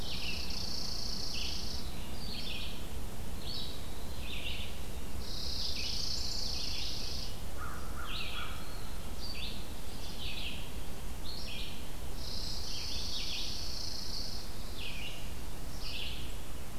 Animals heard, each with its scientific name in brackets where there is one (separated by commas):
Chipping Sparrow (Spizella passerina), Eastern Wood-Pewee (Contopus virens), American Crow (Corvus brachyrhynchos), Red-eyed Vireo (Vireo olivaceus)